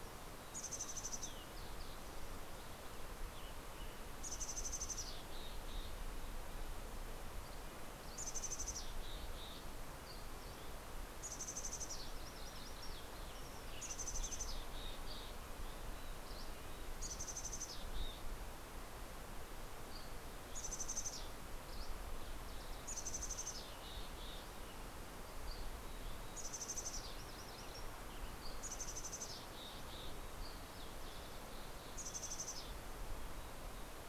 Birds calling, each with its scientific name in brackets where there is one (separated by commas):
Dusky Flycatcher (Empidonax oberholseri), MacGillivray's Warbler (Geothlypis tolmiei), Western Tanager (Piranga ludoviciana), Mountain Chickadee (Poecile gambeli), Red-breasted Nuthatch (Sitta canadensis), Green-tailed Towhee (Pipilo chlorurus)